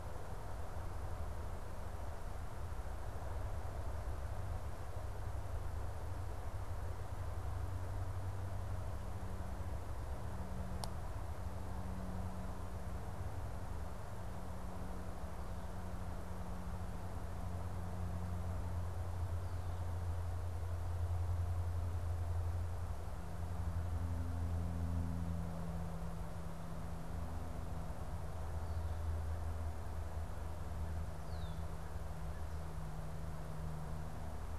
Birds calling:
Red-winged Blackbird (Agelaius phoeniceus)

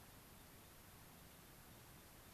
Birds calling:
American Pipit (Anthus rubescens)

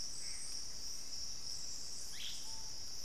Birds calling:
Screaming Piha (Lipaugus vociferans), Ash-throated Gnateater (Conopophaga peruviana)

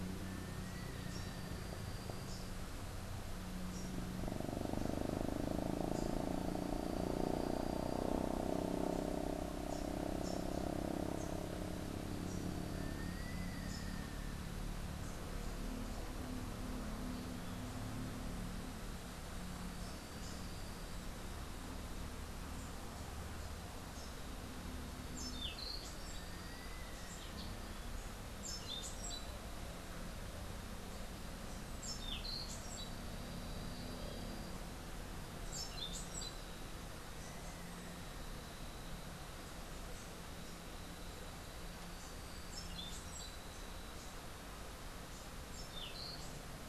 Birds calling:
Little Tinamou (Crypturellus soui), Orange-billed Nightingale-Thrush (Catharus aurantiirostris), Rufous-capped Warbler (Basileuterus rufifrons)

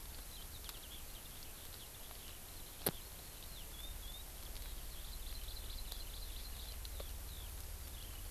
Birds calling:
Eurasian Skylark (Alauda arvensis), Hawaii Amakihi (Chlorodrepanis virens)

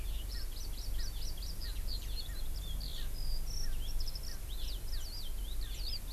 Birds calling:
Eurasian Skylark (Alauda arvensis), Hawaii Amakihi (Chlorodrepanis virens), Erckel's Francolin (Pternistis erckelii)

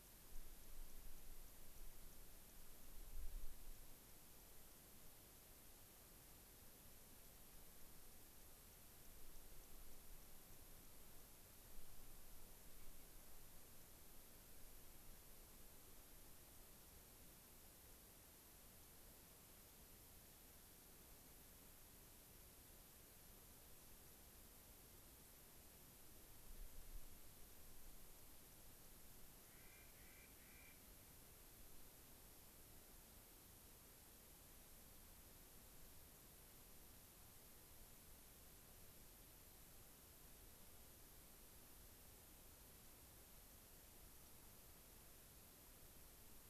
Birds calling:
unidentified bird, Clark's Nutcracker (Nucifraga columbiana)

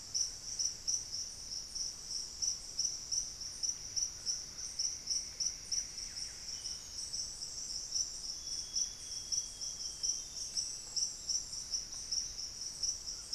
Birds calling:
unidentified bird, Buff-breasted Wren (Cantorchilus leucotis), Amazonian Grosbeak (Cyanoloxia rothschildii), Cinnamon-throated Woodcreeper (Dendrexetastes rufigula), Red-bellied Macaw (Orthopsittaca manilatus)

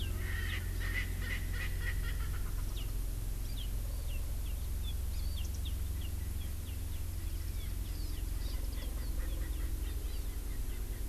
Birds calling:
Erckel's Francolin (Pternistis erckelii), Hawaii Amakihi (Chlorodrepanis virens)

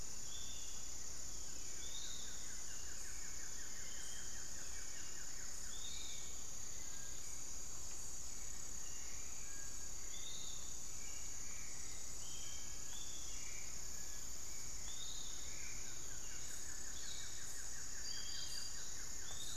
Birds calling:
Little Tinamou (Crypturellus soui), Hauxwell's Thrush (Turdus hauxwelli), Buff-throated Woodcreeper (Xiphorhynchus guttatus), Piratic Flycatcher (Legatus leucophaius)

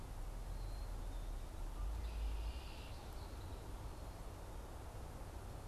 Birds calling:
Red-winged Blackbird (Agelaius phoeniceus)

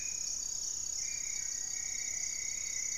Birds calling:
Rufous-fronted Antthrush (Formicarius rufifrons), Ruddy Pigeon (Patagioenas subvinacea), Black-faced Antthrush (Formicarius analis), unidentified bird

